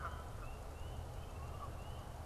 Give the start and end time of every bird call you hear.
[0.00, 2.25] Canada Goose (Branta canadensis)

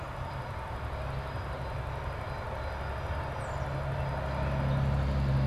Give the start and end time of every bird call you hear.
[3.05, 5.47] Tufted Titmouse (Baeolophus bicolor)

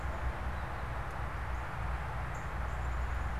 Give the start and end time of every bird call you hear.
[0.00, 3.16] Northern Cardinal (Cardinalis cardinalis)

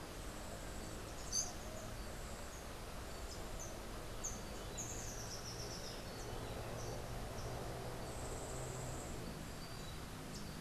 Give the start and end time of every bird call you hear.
[0.00, 10.61] Yellow-faced Grassquit (Tiaris olivaceus)
[1.09, 1.69] Rufous-capped Warbler (Basileuterus rufifrons)
[3.39, 6.39] Rufous-capped Warbler (Basileuterus rufifrons)

